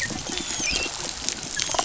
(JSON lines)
{"label": "biophony, dolphin", "recorder": "SoundTrap 500"}